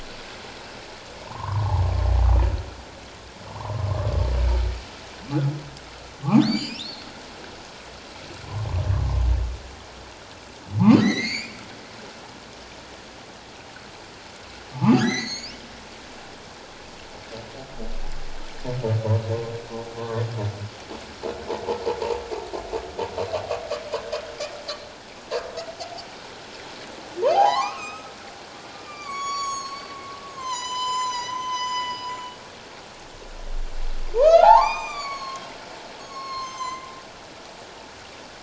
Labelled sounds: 1.3	1.7	humpback whale, 0.81 to 1.2 kHz
3.5	4.0	humpback whale, 0.84 to 1.2 kHz
6.4	7.1	humpback whale, 2.2 to 7.6 kHz
11.0	11.6	humpback whale, 1.8 to 7.5 kHz
14.7	15.6	humpback whale, 0.78 to 6.9 kHz
27.3	28.1	humpback whale, 0.78 to 7.3 kHz
28.8	29.9	humpback whale, 1.0 to 7.9 kHz
30.3	32.1	humpback whale, 0.88 to 7.5 kHz
34.1	35.5	humpback whale, 0.78 to 7.5 kHz
36.0	36.9	humpback whale, 0.94 to 7.4 kHz

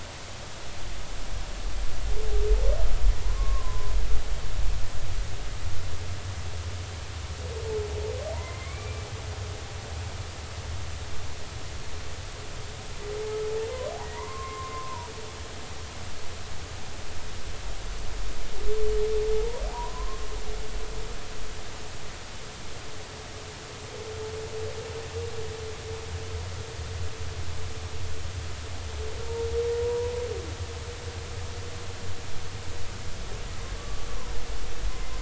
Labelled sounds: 3.2	3.9	humpback whale, 0.83 to 1.2 kHz
8.3	9.1	humpback whale, 0.90 to 2.4 kHz
14.0	15.1	humpback whale, 0.90 to 2.1 kHz
19.7	20.3	humpback whale, 0.80 to 1.1 kHz
29.8	30.1	humpback whale, 0.90 to 1.0 kHz
33.8	34.1	humpback whale, 1.1 to 1.2 kHz

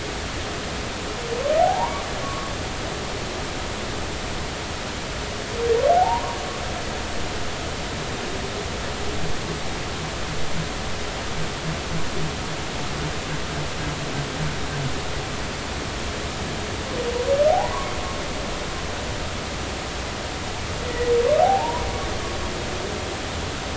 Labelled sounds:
1.6	2.5	humpback whale, 0.80 to 1.2 kHz
5.9	6.4	humpback whale, 0.80 to 1.2 kHz
21.4	21.8	humpback whale, 0.80 to 1.1 kHz

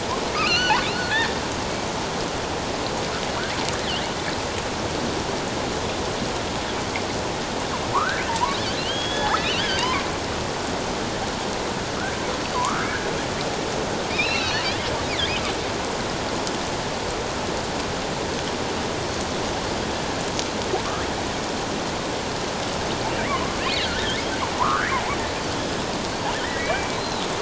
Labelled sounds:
0.4	1.1	killer whale, offshore, 1.3 to 4.5 kHz
7.9	10.0	killer whale, offshore, 0.84 to 3.5 kHz
12.4	12.9	killer whale, offshore, 0.94 to 4.7 kHz
14.1	14.7	killer whale, offshore, 2.3 to 6.2 kHz
23.7	24.2	killer whale, offshore, 1.3 to 2.2 kHz
24.6	25.0	killer whale, offshore, 0.78 to 2.4 kHz
26.3	27.0	killer whale, offshore, 1.6 to 2.4 kHz

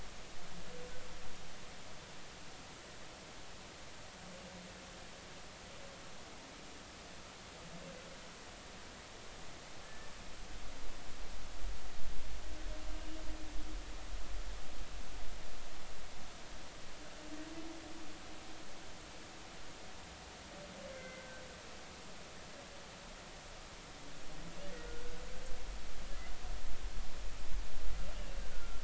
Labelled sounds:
10.8	11.1	humpback whale, 1.7 to 1.8 kHz
12.9	13.2	humpback whale, 2.8 to 2.9 kHz
20.9	21.4	humpback whale, 1.4 to 2.2 kHz
28.5	28.8	humpback whale, 1.3 to 1.5 kHz

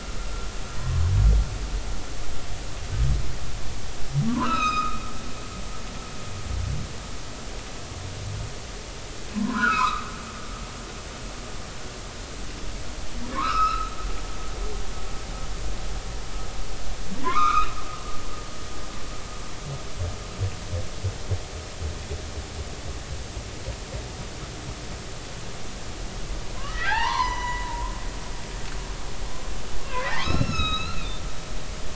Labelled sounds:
4.3	5.0	humpback whale, 0.90 to 5.3 kHz
9.3	10.0	humpback whale, 0.93 to 3.9 kHz
13.3	14.8	humpback whale, 0.90 to 5.4 kHz
17.2	17.7	humpback whale, 0.90 to 3.9 kHz
26.5	27.9	humpback whale, 0.80 to 6.0 kHz
29.9	31.1	humpback whale, 0.93 to 6.8 kHz

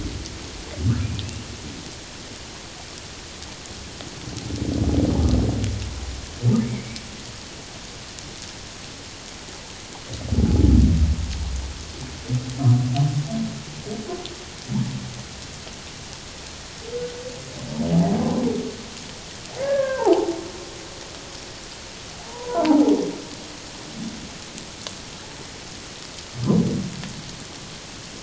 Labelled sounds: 6.6	7.0	humpback whale, 2.0 to 2.4 kHz
19.6	20.3	humpback whale, 0.78 to 1.8 kHz
22.2	22.9	humpback whale, 0.78 to 1.1 kHz

